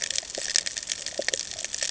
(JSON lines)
{"label": "ambient", "recorder": "HydroMoth"}